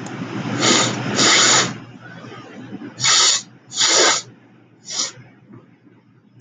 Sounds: Sniff